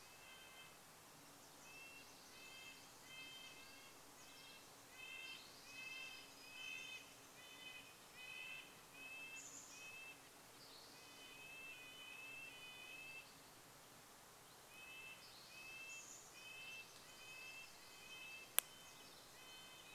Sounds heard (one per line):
Pacific Wren song
Chestnut-backed Chickadee call
Spotted Towhee song
Red-breasted Nuthatch song